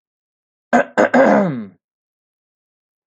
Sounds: Throat clearing